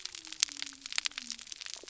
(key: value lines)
label: biophony
recorder: SoundTrap 300